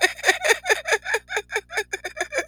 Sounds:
Laughter